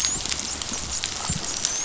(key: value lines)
label: biophony, dolphin
recorder: SoundTrap 500